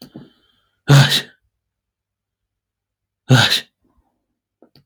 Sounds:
Sneeze